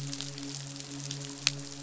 {"label": "biophony, midshipman", "recorder": "SoundTrap 500"}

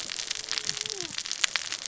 {"label": "biophony, cascading saw", "recorder": "SoundTrap 600 or HydroMoth"}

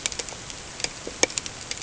{"label": "ambient", "recorder": "HydroMoth"}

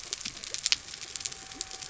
{"label": "biophony", "recorder": "SoundTrap 300"}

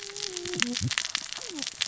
{"label": "biophony, cascading saw", "recorder": "SoundTrap 600 or HydroMoth"}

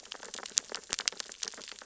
{"label": "biophony, sea urchins (Echinidae)", "recorder": "SoundTrap 600 or HydroMoth"}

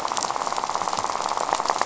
{"label": "biophony, rattle", "recorder": "SoundTrap 500"}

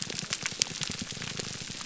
{"label": "biophony, grouper groan", "recorder": "SoundTrap 300"}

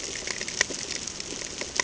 {"label": "ambient", "recorder": "HydroMoth"}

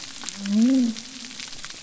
{"label": "biophony", "recorder": "SoundTrap 300"}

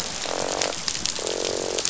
{"label": "biophony, croak", "recorder": "SoundTrap 500"}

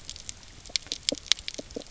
{"label": "biophony", "recorder": "SoundTrap 300"}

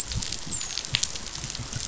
{"label": "biophony, dolphin", "recorder": "SoundTrap 500"}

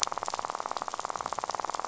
{"label": "biophony, rattle", "recorder": "SoundTrap 500"}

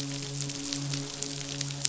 {"label": "biophony, midshipman", "recorder": "SoundTrap 500"}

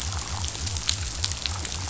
{"label": "biophony", "recorder": "SoundTrap 500"}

